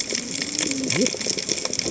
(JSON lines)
{"label": "biophony, cascading saw", "recorder": "HydroMoth"}